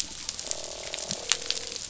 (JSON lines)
{"label": "biophony, croak", "recorder": "SoundTrap 500"}